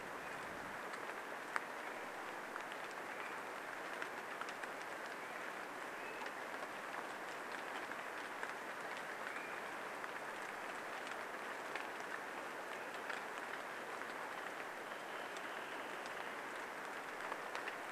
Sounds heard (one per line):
Wrentit song
rain
Swainson's Thrush call